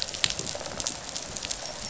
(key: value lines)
label: biophony, rattle response
recorder: SoundTrap 500